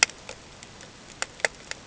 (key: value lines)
label: ambient
recorder: HydroMoth